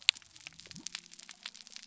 {"label": "biophony", "recorder": "SoundTrap 300"}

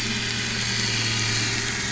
{"label": "anthrophony, boat engine", "recorder": "SoundTrap 500"}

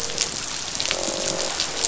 {"label": "biophony, croak", "recorder": "SoundTrap 500"}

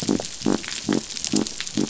{"label": "biophony", "recorder": "SoundTrap 500"}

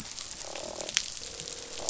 {"label": "biophony, croak", "recorder": "SoundTrap 500"}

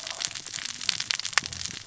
{"label": "biophony, cascading saw", "recorder": "SoundTrap 600 or HydroMoth"}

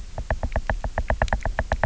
{"label": "biophony, knock", "recorder": "SoundTrap 300"}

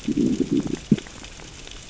{"label": "biophony, growl", "recorder": "SoundTrap 600 or HydroMoth"}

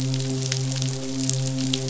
{"label": "biophony, midshipman", "recorder": "SoundTrap 500"}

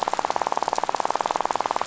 {"label": "biophony, rattle", "recorder": "SoundTrap 500"}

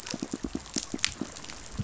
{"label": "biophony, pulse", "recorder": "SoundTrap 500"}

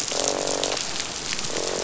{"label": "biophony, croak", "recorder": "SoundTrap 500"}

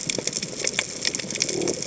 {"label": "biophony", "recorder": "HydroMoth"}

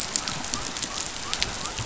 {"label": "biophony", "recorder": "SoundTrap 500"}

